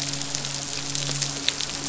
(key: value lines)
label: biophony, midshipman
recorder: SoundTrap 500